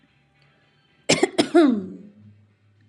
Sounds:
Throat clearing